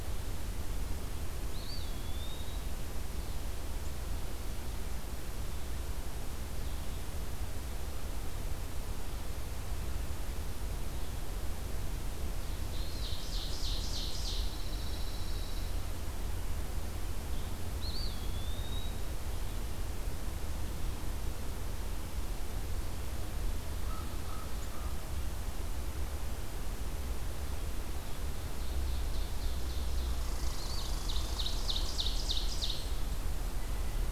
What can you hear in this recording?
Eastern Wood-Pewee, Ovenbird, Pine Warbler, American Crow, Red Squirrel